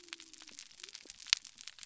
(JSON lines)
{"label": "biophony", "recorder": "SoundTrap 300"}